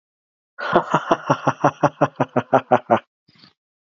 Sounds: Laughter